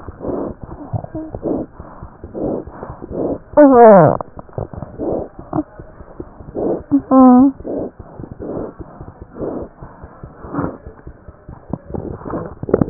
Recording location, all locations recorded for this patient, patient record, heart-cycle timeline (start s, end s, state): pulmonary valve (PV)
aortic valve (AV)+pulmonary valve (PV)+tricuspid valve (TV)+mitral valve (MV)
#Age: Infant
#Sex: Male
#Height: 60.0 cm
#Weight: 8.85 kg
#Pregnancy status: False
#Murmur: Absent
#Murmur locations: nan
#Most audible location: nan
#Systolic murmur timing: nan
#Systolic murmur shape: nan
#Systolic murmur grading: nan
#Systolic murmur pitch: nan
#Systolic murmur quality: nan
#Diastolic murmur timing: nan
#Diastolic murmur shape: nan
#Diastolic murmur grading: nan
#Diastolic murmur pitch: nan
#Diastolic murmur quality: nan
#Outcome: Normal
#Campaign: 2015 screening campaign
0.00	8.83	unannotated
8.83	8.94	diastole
8.94	9.08	S1
9.08	9.20	systole
9.20	9.32	S2
9.32	9.42	diastole
9.42	9.50	S1
9.50	9.60	systole
9.60	9.69	S2
9.69	9.80	diastole
9.80	9.88	S1
9.88	10.01	systole
10.01	10.09	S2
10.09	10.21	diastole
10.21	10.28	S1
10.28	10.42	systole
10.42	10.48	S2
10.48	10.56	diastole
10.56	10.83	unannotated
10.83	10.93	S2
10.93	11.05	diastole
11.05	11.15	S1
11.15	11.24	systole
11.24	11.32	S2
11.32	11.46	diastole
11.46	11.60	S1
11.60	11.68	systole
11.68	11.77	S2
11.77	11.90	diastole
11.90	11.96	S1
11.96	12.09	systole
12.09	12.20	S2
12.20	12.31	diastole
12.31	12.90	unannotated